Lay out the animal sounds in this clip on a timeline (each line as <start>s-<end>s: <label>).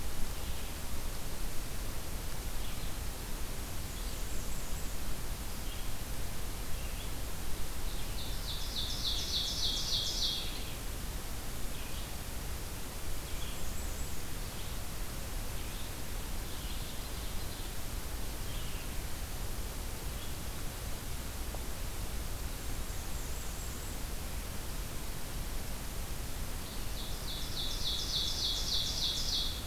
0.0s-20.9s: Red-eyed Vireo (Vireo olivaceus)
3.7s-5.3s: Blackburnian Warbler (Setophaga fusca)
7.7s-10.5s: Ovenbird (Seiurus aurocapilla)
13.2s-14.5s: Blackburnian Warbler (Setophaga fusca)
16.3s-17.9s: Ovenbird (Seiurus aurocapilla)
22.4s-24.3s: Blackburnian Warbler (Setophaga fusca)
26.3s-29.7s: Ovenbird (Seiurus aurocapilla)